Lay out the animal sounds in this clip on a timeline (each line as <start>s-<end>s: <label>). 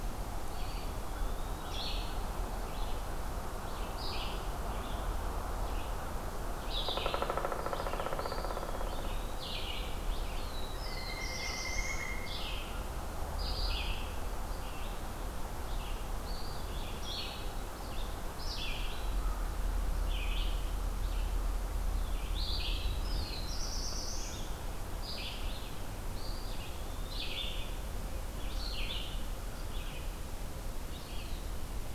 0.0s-31.9s: Red-eyed Vireo (Vireo olivaceus)
0.4s-1.8s: Eastern Wood-Pewee (Contopus virens)
6.8s-9.7s: Pileated Woodpecker (Dryocopus pileatus)
8.1s-9.6s: Eastern Wood-Pewee (Contopus virens)
10.3s-12.2s: Black-throated Blue Warbler (Setophaga caerulescens)
10.7s-12.8s: Pileated Woodpecker (Dryocopus pileatus)
16.1s-17.2s: Eastern Wood-Pewee (Contopus virens)
22.6s-24.8s: Black-throated Blue Warbler (Setophaga caerulescens)
26.1s-27.6s: Eastern Wood-Pewee (Contopus virens)